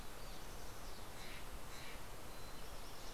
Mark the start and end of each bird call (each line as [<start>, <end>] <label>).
[0.00, 3.13] Mountain Chickadee (Poecile gambeli)
[0.87, 2.47] Steller's Jay (Cyanocitta stelleri)